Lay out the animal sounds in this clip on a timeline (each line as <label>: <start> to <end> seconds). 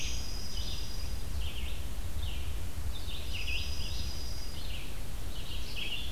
Dark-eyed Junco (Junco hyemalis): 0.0 to 1.4 seconds
Red-eyed Vireo (Vireo olivaceus): 0.0 to 6.1 seconds
Dark-eyed Junco (Junco hyemalis): 3.2 to 4.8 seconds